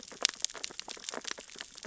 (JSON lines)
{"label": "biophony, sea urchins (Echinidae)", "recorder": "SoundTrap 600 or HydroMoth"}